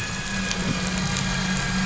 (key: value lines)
label: anthrophony, boat engine
recorder: SoundTrap 500